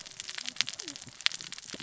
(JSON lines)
{"label": "biophony, cascading saw", "recorder": "SoundTrap 600 or HydroMoth"}